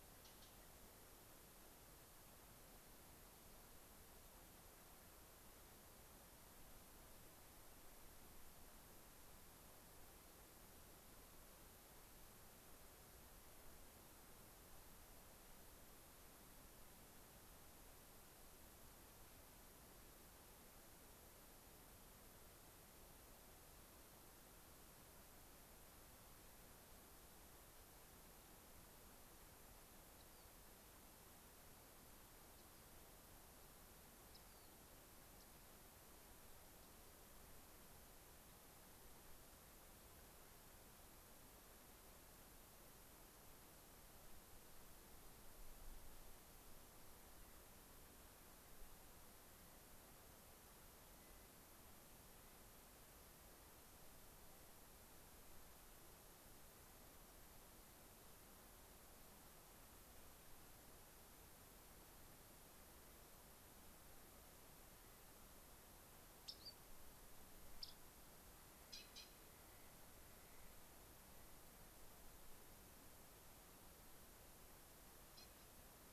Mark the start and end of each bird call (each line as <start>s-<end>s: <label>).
30.1s-30.5s: Rock Wren (Salpinctes obsoletus)
32.3s-32.9s: Rock Wren (Salpinctes obsoletus)
34.2s-34.8s: Rock Wren (Salpinctes obsoletus)
35.2s-35.7s: Rock Wren (Salpinctes obsoletus)
51.0s-51.6s: Clark's Nutcracker (Nucifraga columbiana)
66.4s-66.9s: Rock Wren (Salpinctes obsoletus)
67.7s-68.1s: Rock Wren (Salpinctes obsoletus)